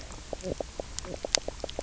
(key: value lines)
label: biophony, knock croak
recorder: SoundTrap 300